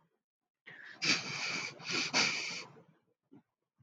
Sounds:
Sniff